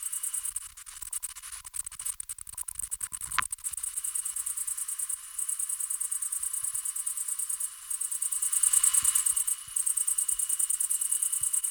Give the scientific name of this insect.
Tettigonia viridissima